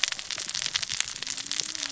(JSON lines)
{"label": "biophony, cascading saw", "recorder": "SoundTrap 600 or HydroMoth"}